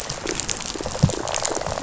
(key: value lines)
label: biophony, rattle response
recorder: SoundTrap 500